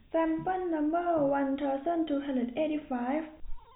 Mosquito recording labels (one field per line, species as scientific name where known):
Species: no mosquito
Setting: cup